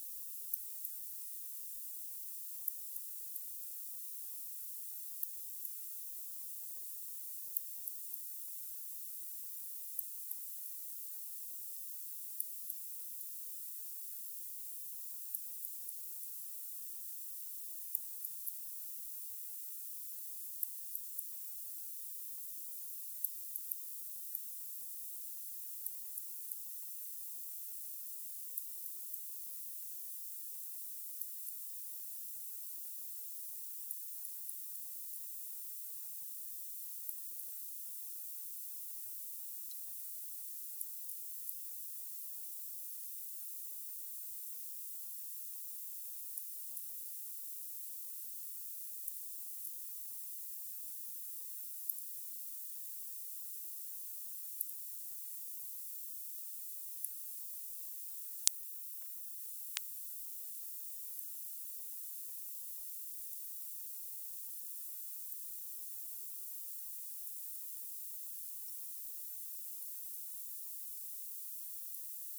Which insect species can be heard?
Leptophyes laticauda